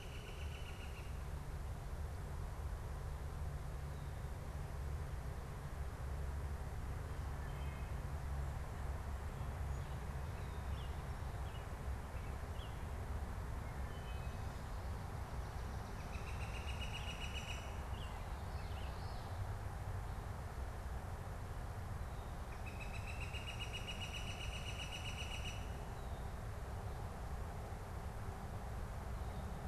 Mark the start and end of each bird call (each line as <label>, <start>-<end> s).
Northern Flicker (Colaptes auratus), 0.0-1.2 s
Wood Thrush (Hylocichla mustelina), 7.3-8.1 s
American Robin (Turdus migratorius), 10.5-12.8 s
Wood Thrush (Hylocichla mustelina), 13.4-14.6 s
Northern Flicker (Colaptes auratus), 15.6-18.0 s
American Robin (Turdus migratorius), 17.8-19.1 s
Common Yellowthroat (Geothlypis trichas), 18.4-19.3 s
Northern Flicker (Colaptes auratus), 22.0-25.9 s